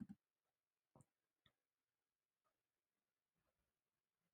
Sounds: Throat clearing